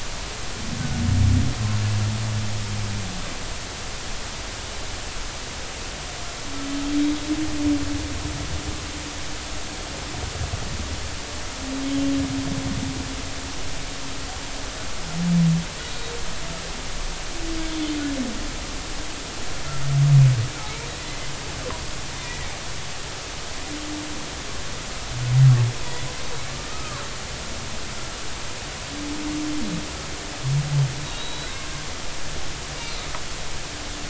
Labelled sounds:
17.7	17.9	humpback whale, 3.3 to 3.6 kHz
21.0	21.3	humpback whale, 1.9 to 2.1 kHz
22.2	22.5	humpback whale, 1.9 to 2.0 kHz
25.8	27.0	humpback whale, 1.0 to 4.0 kHz
31.0	31.5	humpback whale, 3.7 to 4.0 kHz

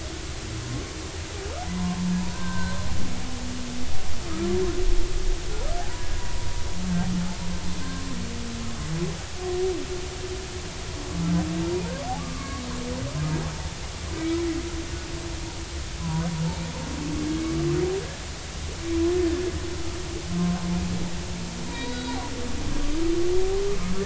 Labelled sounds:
1.6	2.8	humpback whale, 0.86 to 1.6 kHz
5.8	6.5	humpback whale, 0.80 to 1.0 kHz
7.8	8.1	humpback whale, 0.99 to 1.1 kHz
12.2	12.6	humpback whale, 1.1 to 1.2 kHz
14.1	14.4	humpback whale, 2.2 to 2.3 kHz
16.0	16.3	humpback whale, 0.90 to 1.1 kHz
21.7	22.2	humpback whale, 0.90 to 4.0 kHz

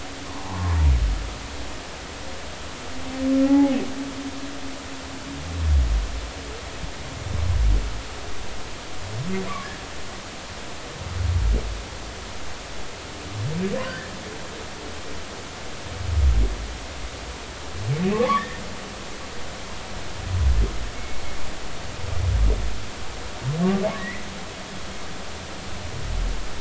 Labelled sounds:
0.3	0.8	humpback whale, 0.80 to 1.1 kHz
3.4	3.8	humpback whale, 0.80 to 0.90 kHz
13.8	14.1	humpback whale, 1.4 to 3.1 kHz
18.1	18.6	humpback whale, 0.96 to 2.1 kHz
20.9	21.2	humpback whale, 2.1 to 2.2 kHz
23.9	24.3	humpback whale, 1.7 to 2.2 kHz

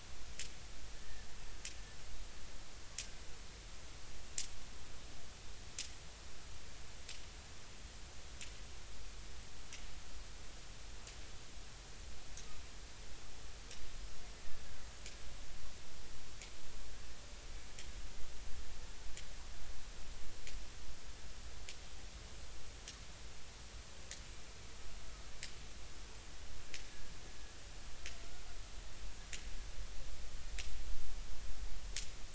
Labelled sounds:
0.9	1.3	killer whale, Bigg's (transient), 1.7 to 1.9 kHz

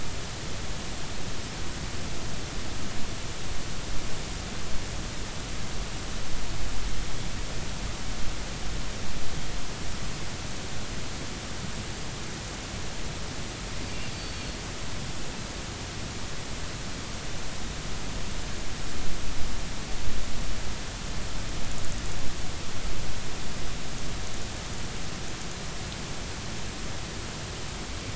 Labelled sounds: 14.1	14.6	killer whale, offshore, 4.2 to 4.6 kHz

